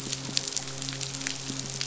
{"label": "biophony, midshipman", "recorder": "SoundTrap 500"}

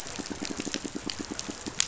{"label": "biophony, pulse", "recorder": "SoundTrap 500"}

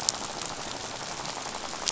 {"label": "biophony, rattle", "recorder": "SoundTrap 500"}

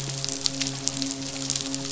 {"label": "biophony, midshipman", "recorder": "SoundTrap 500"}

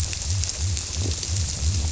{"label": "biophony", "recorder": "SoundTrap 300"}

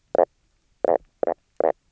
{"label": "biophony, knock croak", "recorder": "SoundTrap 300"}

